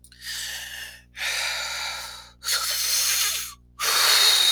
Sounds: Sigh